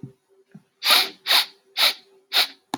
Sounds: Sniff